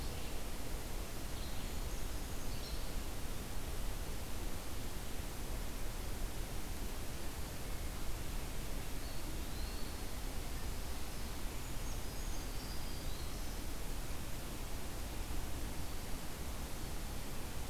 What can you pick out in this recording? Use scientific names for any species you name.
Vireo olivaceus, Certhia americana, Contopus virens, Setophaga virens